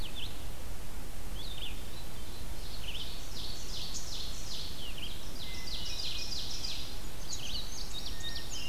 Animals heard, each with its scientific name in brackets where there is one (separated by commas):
Indigo Bunting (Passerina cyanea), Red-eyed Vireo (Vireo olivaceus), Hermit Thrush (Catharus guttatus), Ovenbird (Seiurus aurocapilla)